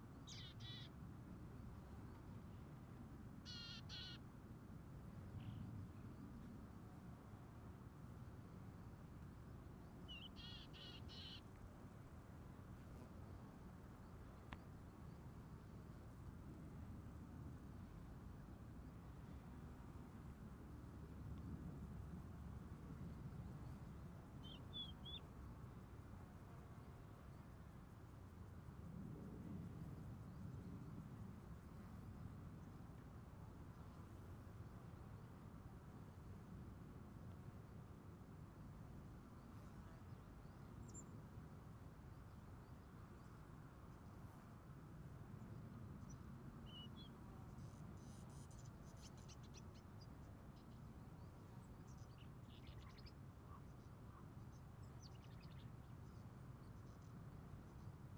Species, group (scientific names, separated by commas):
Gomphocerus sibiricus, Orthoptera